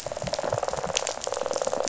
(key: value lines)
label: biophony, rattle
recorder: SoundTrap 500